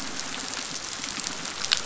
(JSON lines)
{"label": "biophony", "recorder": "SoundTrap 500"}